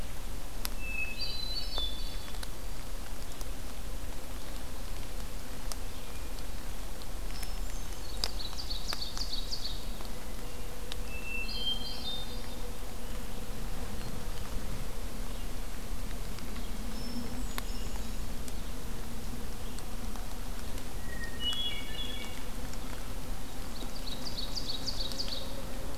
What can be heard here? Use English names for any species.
Hermit Thrush, Ovenbird